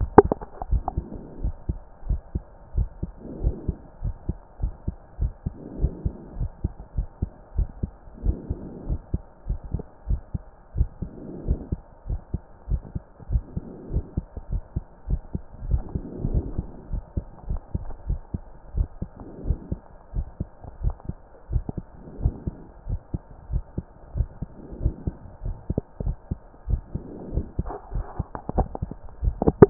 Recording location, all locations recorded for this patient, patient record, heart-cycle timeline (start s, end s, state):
pulmonary valve (PV)
aortic valve (AV)+pulmonary valve (PV)+tricuspid valve (TV)+mitral valve (MV)
#Age: Child
#Sex: Male
#Height: 146.0 cm
#Weight: 34.8 kg
#Pregnancy status: False
#Murmur: Absent
#Murmur locations: nan
#Most audible location: nan
#Systolic murmur timing: nan
#Systolic murmur shape: nan
#Systolic murmur grading: nan
#Systolic murmur pitch: nan
#Systolic murmur quality: nan
#Diastolic murmur timing: nan
#Diastolic murmur shape: nan
#Diastolic murmur grading: nan
#Diastolic murmur pitch: nan
#Diastolic murmur quality: nan
#Outcome: Normal
#Campaign: 2014 screening campaign
0.00	1.32	unannotated
1.32	1.42	diastole
1.42	1.54	S1
1.54	1.68	systole
1.68	1.78	S2
1.78	2.08	diastole
2.08	2.20	S1
2.20	2.34	systole
2.34	2.42	S2
2.42	2.76	diastole
2.76	2.88	S1
2.88	3.02	systole
3.02	3.10	S2
3.10	3.42	diastole
3.42	3.54	S1
3.54	3.66	systole
3.66	3.76	S2
3.76	4.02	diastole
4.02	4.14	S1
4.14	4.28	systole
4.28	4.36	S2
4.36	4.62	diastole
4.62	4.74	S1
4.74	4.86	systole
4.86	4.96	S2
4.96	5.20	diastole
5.20	5.32	S1
5.32	5.44	systole
5.44	5.54	S2
5.54	5.80	diastole
5.80	5.92	S1
5.92	6.04	systole
6.04	6.14	S2
6.14	6.38	diastole
6.38	6.50	S1
6.50	6.62	systole
6.62	6.72	S2
6.72	6.96	diastole
6.96	7.08	S1
7.08	7.20	systole
7.20	7.30	S2
7.30	7.56	diastole
7.56	7.68	S1
7.68	7.82	systole
7.82	7.90	S2
7.90	8.24	diastole
8.24	8.36	S1
8.36	8.50	systole
8.50	8.58	S2
8.58	8.88	diastole
8.88	9.00	S1
9.00	9.12	systole
9.12	9.22	S2
9.22	9.48	diastole
9.48	9.60	S1
9.60	9.72	systole
9.72	9.82	S2
9.82	10.08	diastole
10.08	10.20	S1
10.20	10.34	systole
10.34	10.42	S2
10.42	10.76	diastole
10.76	10.88	S1
10.88	11.02	systole
11.02	11.10	S2
11.10	11.46	diastole
11.46	11.60	S1
11.60	11.70	systole
11.70	11.80	S2
11.80	12.08	diastole
12.08	12.20	S1
12.20	12.32	systole
12.32	12.42	S2
12.42	12.70	diastole
12.70	12.82	S1
12.82	12.94	systole
12.94	13.02	S2
13.02	13.30	diastole
13.30	13.44	S1
13.44	13.56	systole
13.56	13.64	S2
13.64	13.92	diastole
13.92	14.04	S1
14.04	14.16	systole
14.16	14.26	S2
14.26	14.50	diastole
14.50	14.62	S1
14.62	14.74	systole
14.74	14.84	S2
14.84	15.08	diastole
15.08	15.20	S1
15.20	15.34	systole
15.34	15.42	S2
15.42	15.66	diastole
15.66	15.82	S1
15.82	15.94	systole
15.94	16.02	S2
16.02	16.28	diastole
16.28	16.44	S1
16.44	16.56	systole
16.56	16.66	S2
16.66	16.90	diastole
16.90	17.02	S1
17.02	17.16	systole
17.16	17.24	S2
17.24	17.48	diastole
17.48	17.60	S1
17.60	17.74	systole
17.74	17.84	S2
17.84	18.08	diastole
18.08	18.20	S1
18.20	18.32	systole
18.32	18.42	S2
18.42	18.76	diastole
18.76	18.88	S1
18.88	19.00	systole
19.00	19.10	S2
19.10	19.46	diastole
19.46	19.58	S1
19.58	19.70	systole
19.70	19.80	S2
19.80	20.14	diastole
20.14	20.26	S1
20.26	20.40	systole
20.40	20.48	S2
20.48	20.82	diastole
20.82	20.94	S1
20.94	21.08	systole
21.08	21.16	S2
21.16	21.52	diastole
21.52	21.64	S1
21.64	21.76	systole
21.76	21.86	S2
21.86	22.22	diastole
22.22	22.34	S1
22.34	22.46	systole
22.46	22.56	S2
22.56	22.88	diastole
22.88	23.00	S1
23.00	23.12	systole
23.12	23.22	S2
23.22	23.50	diastole
23.50	23.64	S1
23.64	23.76	systole
23.76	23.86	S2
23.86	24.16	diastole
24.16	24.28	S1
24.28	24.40	systole
24.40	24.50	S2
24.50	24.82	diastole
24.82	24.94	S1
24.94	25.06	systole
25.06	25.14	S2
25.14	25.44	diastole
25.44	25.56	S1
25.56	25.70	systole
25.70	25.80	S2
25.80	26.04	diastole
26.04	26.16	S1
26.16	26.30	systole
26.30	26.38	S2
26.38	26.68	diastole
26.68	26.82	S1
26.82	26.94	systole
26.94	27.02	S2
27.02	27.34	diastole
27.34	27.46	S1
27.46	27.58	systole
27.58	27.68	S2
27.68	27.94	diastole
27.94	29.70	unannotated